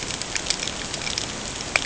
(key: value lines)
label: ambient
recorder: HydroMoth